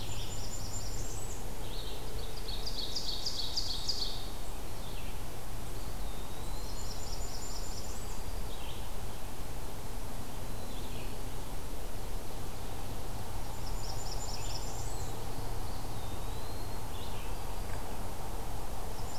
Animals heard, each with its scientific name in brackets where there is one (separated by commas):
Eastern Wood-Pewee (Contopus virens), Ovenbird (Seiurus aurocapilla), Red-eyed Vireo (Vireo olivaceus), Blackburnian Warbler (Setophaga fusca)